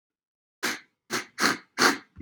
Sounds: Sniff